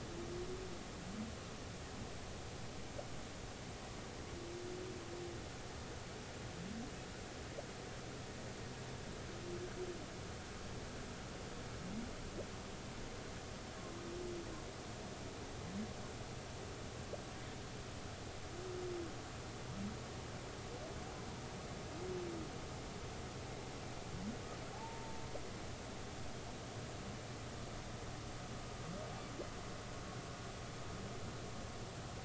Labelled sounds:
24.7	25.2	humpback whale, 0.80 to 0.96 kHz

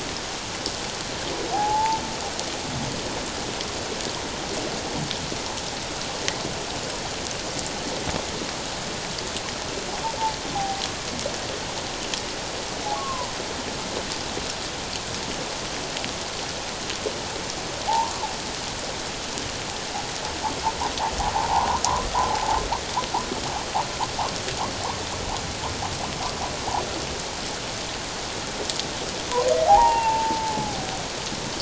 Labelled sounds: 1.5	2.0	humpback whale, 0.78 to 1.0 kHz
10.5	10.8	humpback whale, 0.78 to 0.88 kHz
12.9	13.3	humpback whale, 0.91 to 1.2 kHz
17.8	18.3	humpback whale, 0.78 to 1.2 kHz
29.7	30.7	humpback whale, 0.78 to 2.8 kHz

